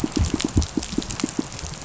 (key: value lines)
label: biophony, pulse
recorder: SoundTrap 500